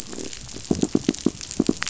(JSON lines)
{"label": "biophony, croak", "recorder": "SoundTrap 500"}
{"label": "biophony, knock", "recorder": "SoundTrap 500"}